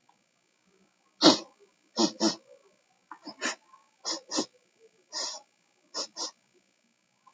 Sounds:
Sniff